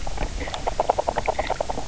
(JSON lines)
{"label": "biophony, knock croak", "recorder": "SoundTrap 300"}